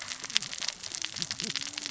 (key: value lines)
label: biophony, cascading saw
recorder: SoundTrap 600 or HydroMoth